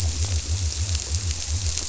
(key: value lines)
label: biophony
recorder: SoundTrap 300